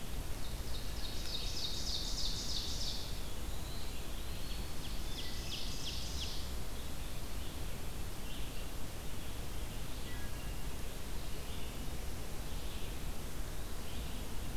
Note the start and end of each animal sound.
[0.00, 14.57] Red-eyed Vireo (Vireo olivaceus)
[0.06, 3.20] Ovenbird (Seiurus aurocapilla)
[3.01, 3.97] Black-throated Blue Warbler (Setophaga caerulescens)
[3.59, 4.92] Eastern Wood-Pewee (Contopus virens)
[4.87, 6.40] Ovenbird (Seiurus aurocapilla)
[10.01, 10.49] Wood Thrush (Hylocichla mustelina)

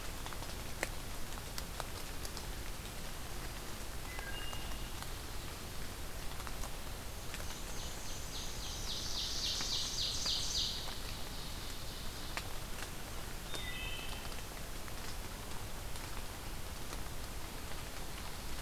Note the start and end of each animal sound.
[3.89, 5.02] Wood Thrush (Hylocichla mustelina)
[7.20, 8.97] Black-and-white Warbler (Mniotilta varia)
[7.37, 12.53] Ovenbird (Seiurus aurocapilla)
[13.40, 14.44] Wood Thrush (Hylocichla mustelina)

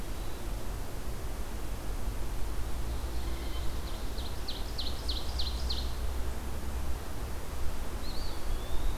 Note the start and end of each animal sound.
[3.16, 3.75] Blue Jay (Cyanocitta cristata)
[3.41, 6.02] Ovenbird (Seiurus aurocapilla)
[7.84, 8.98] Eastern Wood-Pewee (Contopus virens)

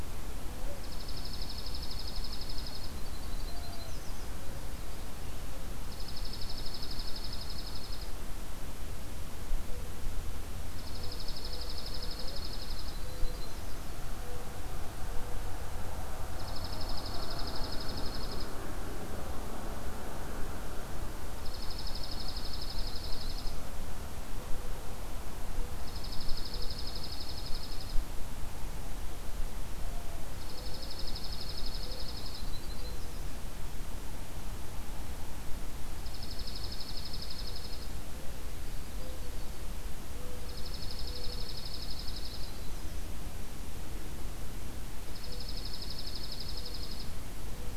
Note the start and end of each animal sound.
[0.70, 2.98] Dark-eyed Junco (Junco hyemalis)
[2.88, 5.73] Yellow-rumped Warbler (Setophaga coronata)
[5.74, 8.11] Dark-eyed Junco (Junco hyemalis)
[10.62, 12.97] Dark-eyed Junco (Junco hyemalis)
[12.68, 14.48] Yellow-rumped Warbler (Setophaga coronata)
[16.26, 18.54] Dark-eyed Junco (Junco hyemalis)
[21.22, 23.58] Dark-eyed Junco (Junco hyemalis)
[25.71, 28.03] Dark-eyed Junco (Junco hyemalis)
[30.34, 32.46] Dark-eyed Junco (Junco hyemalis)
[32.37, 33.27] Yellow-rumped Warbler (Setophaga coronata)
[35.86, 37.93] Dark-eyed Junco (Junco hyemalis)
[38.20, 41.60] Mourning Dove (Zenaida macroura)
[38.53, 39.73] Yellow-rumped Warbler (Setophaga coronata)
[40.32, 42.58] Dark-eyed Junco (Junco hyemalis)
[42.30, 43.13] Yellow-rumped Warbler (Setophaga coronata)
[45.04, 47.76] Mourning Dove (Zenaida macroura)
[45.09, 47.17] Dark-eyed Junco (Junco hyemalis)

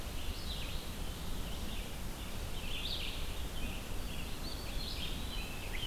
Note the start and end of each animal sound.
[0.00, 5.87] Red-eyed Vireo (Vireo olivaceus)
[4.17, 5.79] Eastern Wood-Pewee (Contopus virens)
[4.88, 5.87] Rose-breasted Grosbeak (Pheucticus ludovicianus)

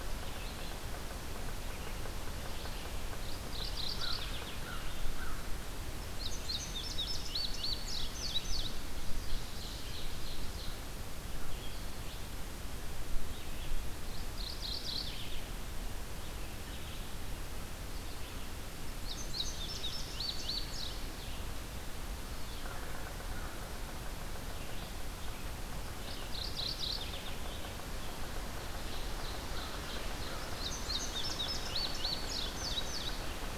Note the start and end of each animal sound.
[0.00, 3.26] Yellow-bellied Sapsucker (Sphyrapicus varius)
[0.00, 33.58] Red-eyed Vireo (Vireo olivaceus)
[3.12, 4.54] Mourning Warbler (Geothlypis philadelphia)
[3.88, 5.51] American Crow (Corvus brachyrhynchos)
[6.01, 8.84] Indigo Bunting (Passerina cyanea)
[8.98, 10.89] Ovenbird (Seiurus aurocapilla)
[13.97, 15.47] Mourning Warbler (Geothlypis philadelphia)
[18.79, 21.34] Indigo Bunting (Passerina cyanea)
[22.43, 29.35] Yellow-bellied Sapsucker (Sphyrapicus varius)
[26.08, 27.45] Mourning Warbler (Geothlypis philadelphia)
[29.54, 30.66] American Crow (Corvus brachyrhynchos)
[30.15, 33.19] Indigo Bunting (Passerina cyanea)

